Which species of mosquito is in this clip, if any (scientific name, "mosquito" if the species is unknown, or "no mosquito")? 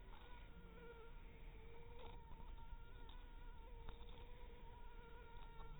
Anopheles harrisoni